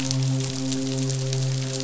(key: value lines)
label: biophony, midshipman
recorder: SoundTrap 500